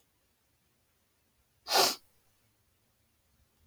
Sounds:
Sniff